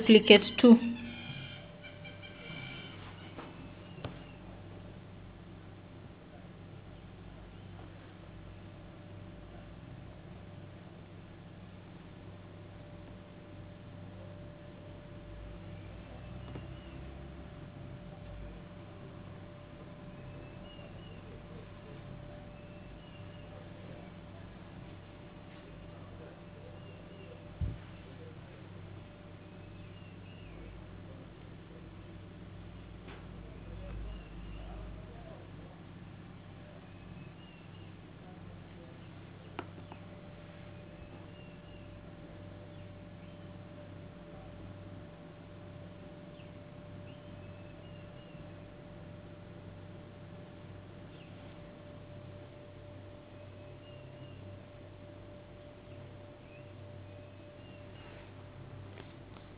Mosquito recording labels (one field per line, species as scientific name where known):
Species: no mosquito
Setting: insect culture